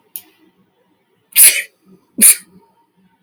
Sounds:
Sneeze